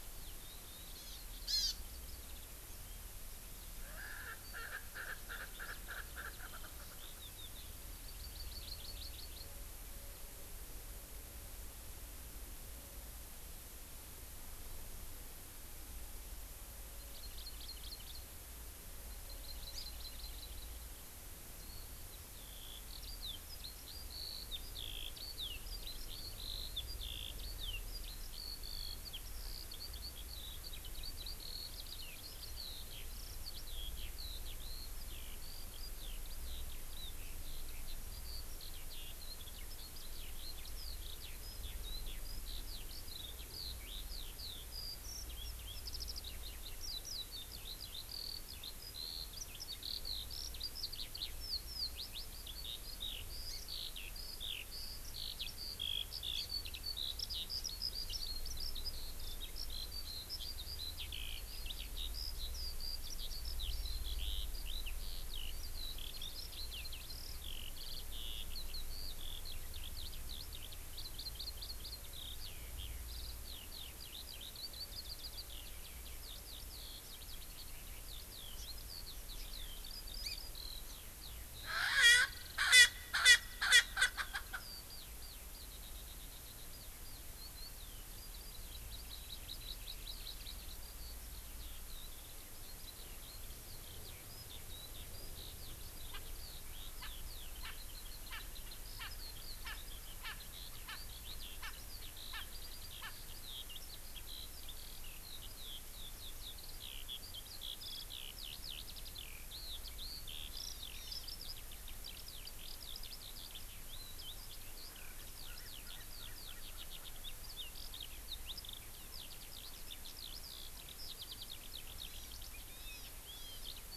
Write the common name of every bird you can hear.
Hawaii Amakihi, Eurasian Skylark, Erckel's Francolin